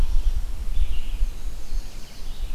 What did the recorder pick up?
Red-eyed Vireo, Black-and-white Warbler